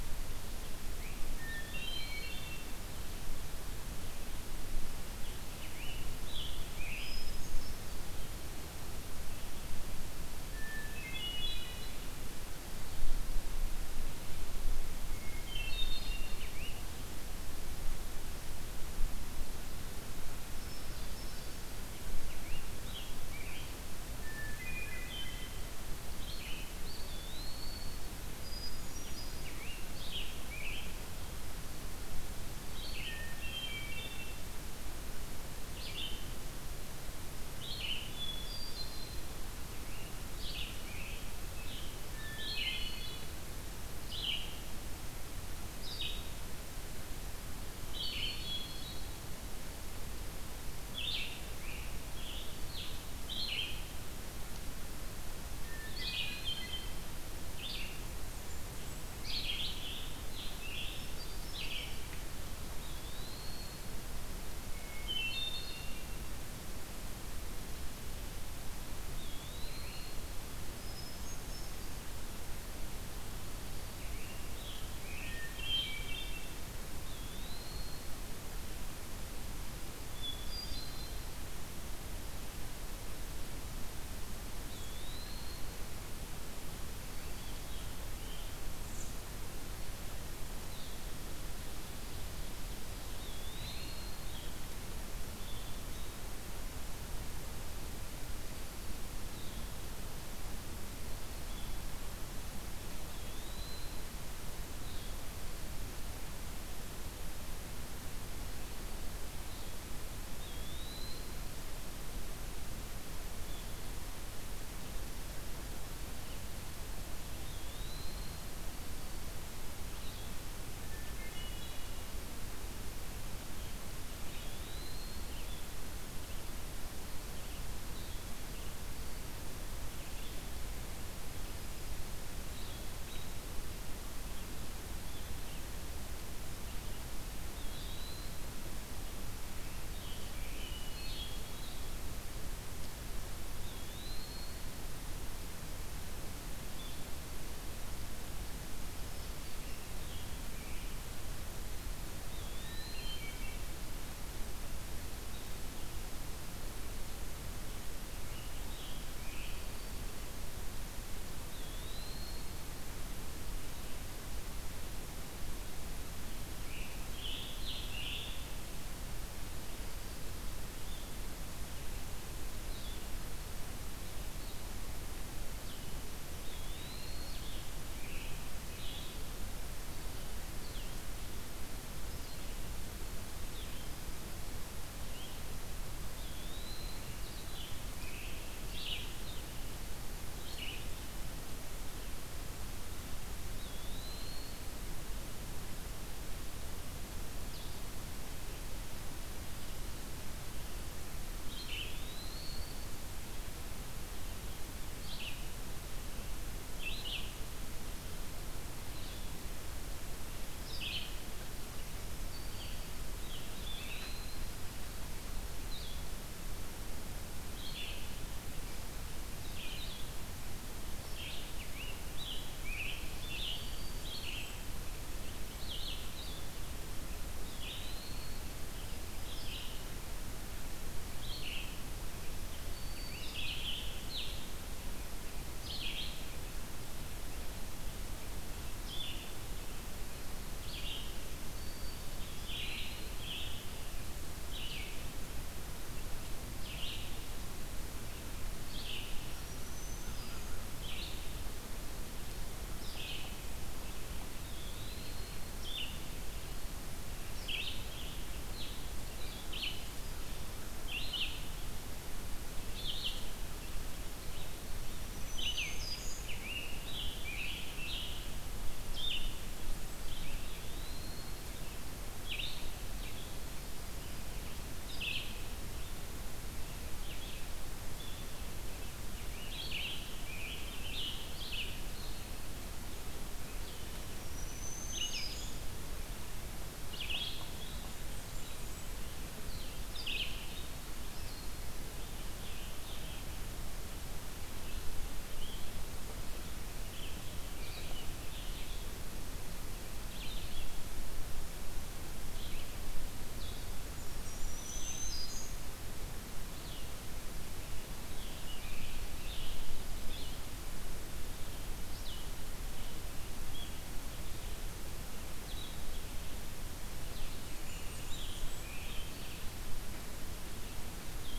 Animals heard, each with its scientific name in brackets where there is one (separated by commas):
Blue-headed Vireo (Vireo solitarius), Red-eyed Vireo (Vireo olivaceus), Eastern Wood-Pewee (Contopus virens), Scarlet Tanager (Piranga olivacea), Blackburnian Warbler (Setophaga fusca), Black-throated Green Warbler (Setophaga virens), Hermit Thrush (Catharus guttatus)